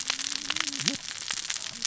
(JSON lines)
{"label": "biophony, cascading saw", "recorder": "SoundTrap 600 or HydroMoth"}